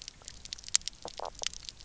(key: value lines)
label: biophony, knock croak
recorder: SoundTrap 300